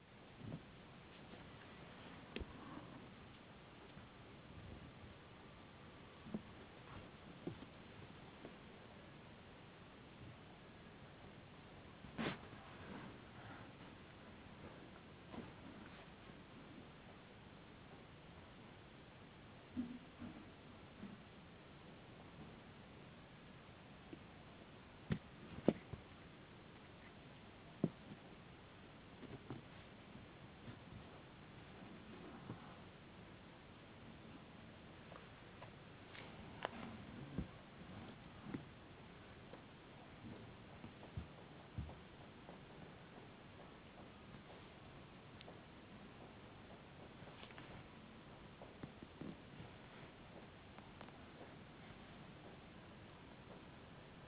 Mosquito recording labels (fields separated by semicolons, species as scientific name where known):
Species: no mosquito; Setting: insect culture